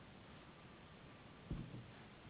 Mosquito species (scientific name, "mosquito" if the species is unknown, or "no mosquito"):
Anopheles gambiae s.s.